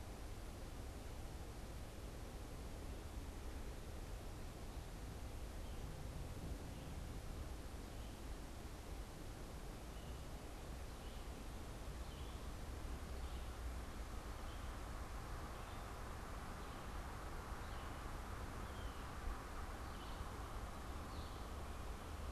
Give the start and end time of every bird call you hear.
7.9s-21.4s: Red-eyed Vireo (Vireo olivaceus)
18.6s-19.2s: unidentified bird

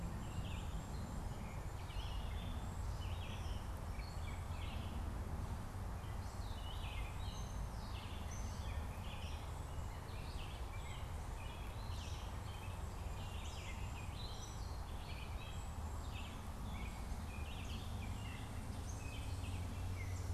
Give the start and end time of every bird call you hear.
0.0s-20.0s: Red-eyed Vireo (Vireo olivaceus)
0.0s-20.3s: Gray Catbird (Dumetella carolinensis)
10.8s-16.4s: Cedar Waxwing (Bombycilla cedrorum)

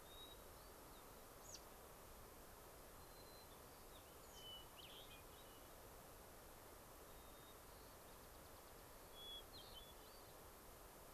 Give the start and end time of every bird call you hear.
0.0s-1.3s: Hermit Thrush (Catharus guttatus)
1.4s-1.7s: American Robin (Turdus migratorius)
2.9s-4.3s: White-crowned Sparrow (Zonotrichia leucophrys)
4.2s-4.5s: American Robin (Turdus migratorius)
4.3s-5.8s: Hermit Thrush (Catharus guttatus)
7.0s-8.8s: White-crowned Sparrow (Zonotrichia leucophrys)
9.1s-10.4s: Hermit Thrush (Catharus guttatus)

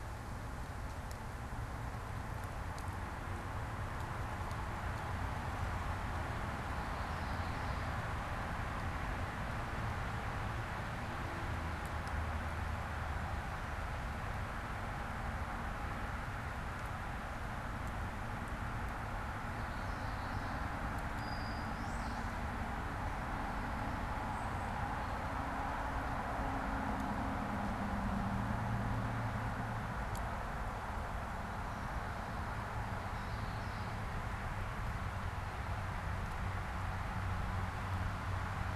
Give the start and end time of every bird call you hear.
6.6s-8.4s: Common Yellowthroat (Geothlypis trichas)
19.6s-20.9s: Common Yellowthroat (Geothlypis trichas)
21.1s-22.5s: unidentified bird
33.0s-34.2s: Common Yellowthroat (Geothlypis trichas)

